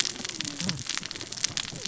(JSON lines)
{"label": "biophony, cascading saw", "recorder": "SoundTrap 600 or HydroMoth"}